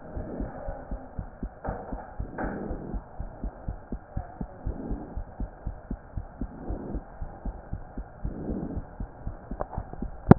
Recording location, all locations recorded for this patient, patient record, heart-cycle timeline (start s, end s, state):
pulmonary valve (PV)
aortic valve (AV)+pulmonary valve (PV)+tricuspid valve (TV)+mitral valve (MV)
#Age: Child
#Sex: Female
#Height: 120.0 cm
#Weight: 24.8 kg
#Pregnancy status: False
#Murmur: Absent
#Murmur locations: nan
#Most audible location: nan
#Systolic murmur timing: nan
#Systolic murmur shape: nan
#Systolic murmur grading: nan
#Systolic murmur pitch: nan
#Systolic murmur quality: nan
#Diastolic murmur timing: nan
#Diastolic murmur shape: nan
#Diastolic murmur grading: nan
#Diastolic murmur pitch: nan
#Diastolic murmur quality: nan
#Outcome: Normal
#Campaign: 2015 screening campaign
0.00	0.14	unannotated
0.14	0.26	S1
0.26	0.38	systole
0.38	0.50	S2
0.50	0.64	diastole
0.64	0.78	S1
0.78	0.89	systole
0.89	1.00	S2
1.00	1.16	diastole
1.16	1.28	S1
1.28	1.39	systole
1.39	1.52	S2
1.52	1.65	diastole
1.65	1.78	S1
1.78	1.90	systole
1.90	2.00	S2
2.00	2.16	diastole
2.16	2.30	S1
2.30	2.40	systole
2.40	2.54	S2
2.54	2.68	diastole
2.68	2.79	S1
2.79	2.90	systole
2.90	3.02	S2
3.02	3.17	diastole
3.17	3.30	S1
3.30	3.41	systole
3.41	3.52	S2
3.52	3.66	diastole
3.66	3.78	S1
3.78	3.89	systole
3.89	4.00	S2
4.00	4.14	diastole
4.14	4.24	S1
4.24	4.38	systole
4.38	4.48	S2
4.48	4.64	diastole
4.64	4.78	S1
4.78	4.86	systole
4.86	5.00	S2
5.00	5.13	diastole
5.13	5.26	S1
5.26	5.37	systole
5.37	5.50	S2
5.50	5.63	diastole
5.63	5.76	S1
5.76	5.88	systole
5.88	6.00	S2
6.00	6.13	diastole
6.13	6.26	S1
6.26	6.38	systole
6.38	6.52	S2
6.52	6.65	diastole
6.65	6.80	S1
6.80	10.38	unannotated